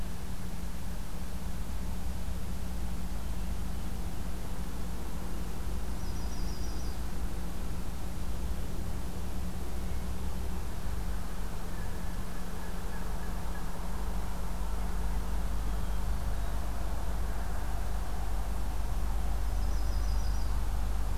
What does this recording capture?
Yellow-rumped Warbler, Hermit Thrush